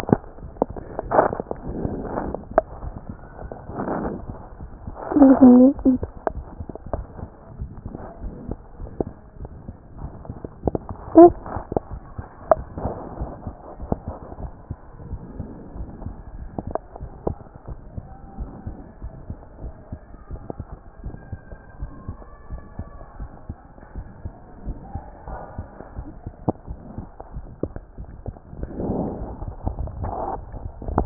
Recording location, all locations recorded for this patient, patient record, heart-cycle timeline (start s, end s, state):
pulmonary valve (PV)
aortic valve (AV)+pulmonary valve (PV)+tricuspid valve (TV)+mitral valve (MV)
#Age: Child
#Sex: Female
#Height: 121.0 cm
#Weight: 26.8 kg
#Pregnancy status: False
#Murmur: Absent
#Murmur locations: nan
#Most audible location: nan
#Systolic murmur timing: nan
#Systolic murmur shape: nan
#Systolic murmur grading: nan
#Systolic murmur pitch: nan
#Systolic murmur quality: nan
#Diastolic murmur timing: nan
#Diastolic murmur shape: nan
#Diastolic murmur grading: nan
#Diastolic murmur pitch: nan
#Diastolic murmur quality: nan
#Outcome: Abnormal
#Campaign: 2014 screening campaign
0.00	16.87	unannotated
16.87	17.00	diastole
17.00	17.10	S1
17.10	17.26	systole
17.26	17.38	S2
17.38	17.68	diastole
17.68	17.78	S1
17.78	17.94	systole
17.94	18.04	S2
18.04	18.38	diastole
18.38	18.50	S1
18.50	18.66	systole
18.66	18.76	S2
18.76	19.02	diastole
19.02	19.14	S1
19.14	19.28	systole
19.28	19.38	S2
19.38	19.62	diastole
19.62	19.74	S1
19.74	19.92	systole
19.92	20.00	S2
20.00	20.30	diastole
20.30	20.42	S1
20.42	20.60	systole
20.60	20.68	S2
20.68	21.04	diastole
21.04	21.16	S1
21.16	21.30	systole
21.30	21.40	S2
21.40	21.80	diastole
21.80	21.92	S1
21.92	22.08	systole
22.08	22.16	S2
22.16	22.50	diastole
22.50	22.62	S1
22.62	22.78	systole
22.78	22.88	S2
22.88	23.18	diastole
23.18	23.30	S1
23.30	23.48	systole
23.48	23.58	S2
23.58	23.96	diastole
23.96	24.06	S1
24.06	24.24	systole
24.24	24.34	S2
24.34	24.66	diastole
24.66	24.78	S1
24.78	24.94	systole
24.94	25.02	S2
25.02	25.28	diastole
25.28	25.40	S1
25.40	25.58	systole
25.58	25.68	S2
25.68	25.96	diastole
25.96	26.08	S1
26.08	26.26	systole
26.26	26.34	S2
26.34	26.68	diastole
26.68	26.80	S1
26.80	26.96	systole
26.96	27.06	S2
27.06	27.34	diastole
27.34	31.06	unannotated